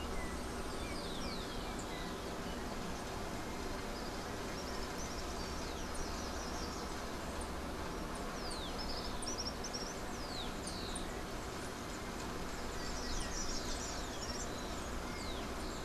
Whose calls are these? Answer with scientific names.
Icterus chrysater, Tiaris olivaceus, Todirostrum cinereum, Myioborus miniatus, Zonotrichia capensis